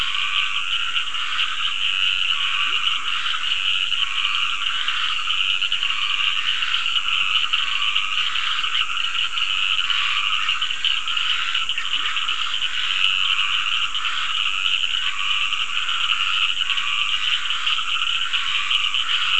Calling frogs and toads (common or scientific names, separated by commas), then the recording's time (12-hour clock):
Dendropsophus nahdereri, Scinax perereca, Leptodactylus latrans
7:15pm